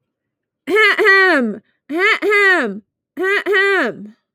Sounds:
Throat clearing